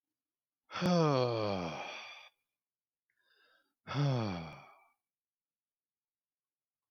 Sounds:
Sigh